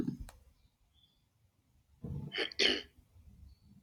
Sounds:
Throat clearing